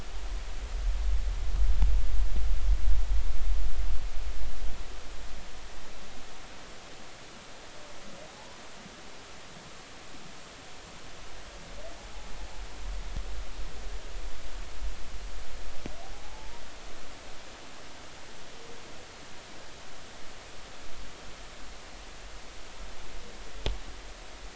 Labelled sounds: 8.3	8.6	humpback whale, 0.80 to 1.0 kHz
16.1	16.6	humpback whale, 0.80 to 0.99 kHz

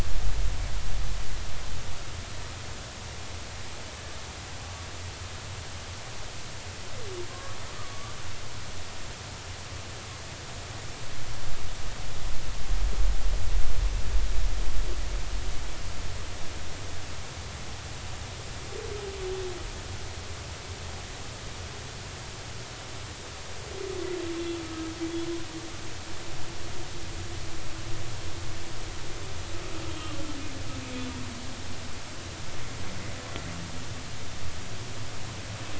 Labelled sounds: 7.3	7.6	humpback whale, 1.0 to 1.2 kHz
7.9	8.2	humpback whale, 1.1 to 1.3 kHz

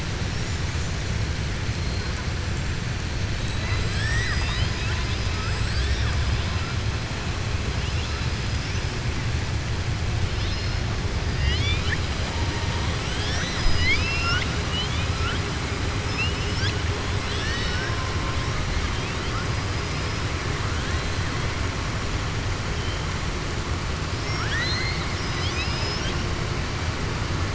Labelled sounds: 3.4	4.1	killer whale, southern resident, 1.1 to 5.4 kHz
11.3	12.0	killer whale, southern resident, 1.6 to 6.4 kHz
13.0	15.4	killer whale, southern resident, 0.72 to 7.7 kHz
24.1	26.2	killer whale, southern resident, 1.4 to 6.5 kHz

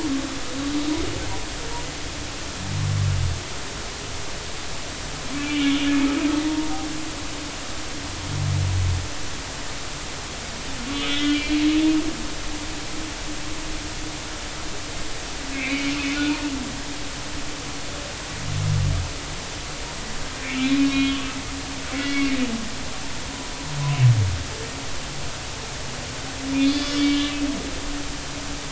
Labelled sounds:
5.3	6.7	humpback whale, 0.90 to 3.0 kHz
10.9	11.6	humpback whale, 1.4 to 3.6 kHz
15.5	16.0	humpback whale, 2.0 to 3.0 kHz
20.6	21.2	humpback whale, 2.1 to 3.4 kHz
21.9	22.4	humpback whale, 1.9 to 3.4 kHz
26.7	27.3	humpback whale, 2.8 to 4.8 kHz

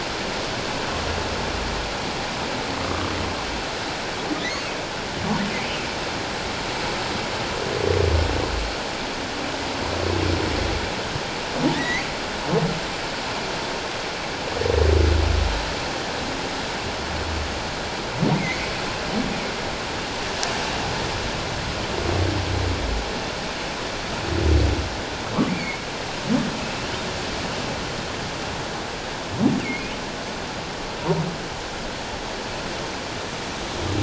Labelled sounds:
2.8	3.1	humpback whale, 1.1 to 1.2 kHz
11.7	12.1	humpback whale, 1.7 to 4.0 kHz
18.3	18.7	humpback whale, 1.9 to 2.3 kHz
25.5	25.8	humpback whale, 2.0 to 2.4 kHz
29.6	29.9	humpback whale, 2.1 to 2.4 kHz

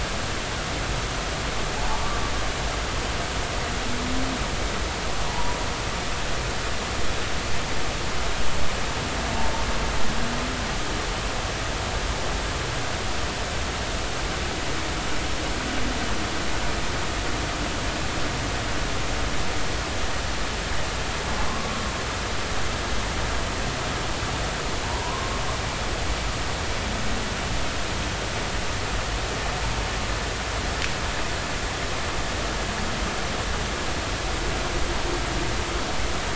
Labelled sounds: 5.3	5.6	humpback whale, 0.80 to 1.0 kHz
21.5	21.7	humpback whale, 0.99 to 1.2 kHz
24.8	25.3	humpback whale, 0.86 to 1.1 kHz

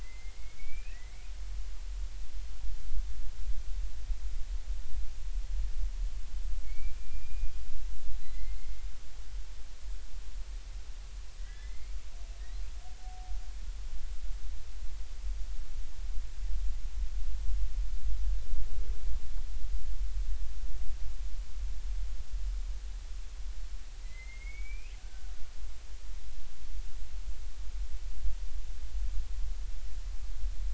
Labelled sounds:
0.0	1.3	killer whale, Bigg's (transient), 1.8 to 2.7 kHz
6.6	7.5	killer whale, Bigg's (transient), 2.1 to 2.5 kHz
8.2	8.8	killer whale, Bigg's (transient), 1.9 to 4.3 kHz
11.4	12.0	killer whale, Bigg's (transient), 1.5 to 2.3 kHz
24.0	25.3	killer whale, Bigg's (transient), 1.4 to 2.9 kHz

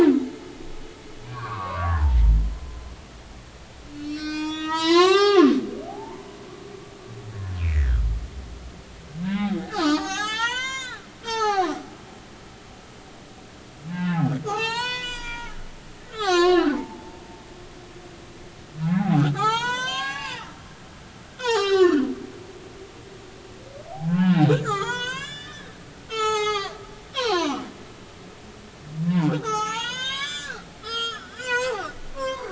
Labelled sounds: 1.2	2.2	humpback whale, 0.83 to 2.5 kHz
3.9	5.5	humpback whale, 0.80 to 8.0 kHz
5.9	6.2	humpback whale, 0.80 to 1.1 kHz
7.7	8.0	humpback whale, 1.2 to 2.1 kHz
9.3	12.0	humpback whale, 0.80 to 8.0 kHz
13.9	17.2	humpback whale, 0.80 to 8.0 kHz
18.9	20.5	humpback whale, 0.80 to 7.7 kHz
21.3	22.9	humpback whale, 0.80 to 7.1 kHz
23.9	25.7	humpback whale, 0.80 to 7.6 kHz
26.0	27.6	humpback whale, 0.80 to 8.0 kHz
29.0	32.5	humpback whale, 0.80 to 7.9 kHz

